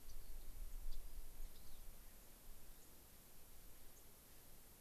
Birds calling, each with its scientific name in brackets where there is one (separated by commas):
unidentified bird, Rock Wren (Salpinctes obsoletus), White-crowned Sparrow (Zonotrichia leucophrys)